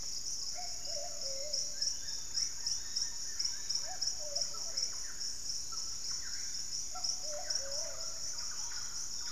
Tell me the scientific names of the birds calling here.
Psarocolius angustifrons, Patagioenas plumbea, Tolmomyias assimilis, Ornithion inerme, Piprites chloris, Cantorchilus leucotis, unidentified bird, Campylorhynchus turdinus